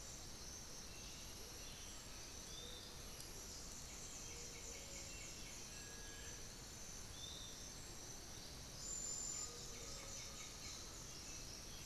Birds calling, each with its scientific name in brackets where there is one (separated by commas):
Piratic Flycatcher (Legatus leucophaius), Undulated Tinamou (Crypturellus undulatus), White-winged Becard (Pachyramphus polychopterus), Black-billed Thrush (Turdus ignobilis), Little Tinamou (Crypturellus soui)